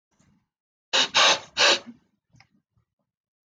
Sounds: Sniff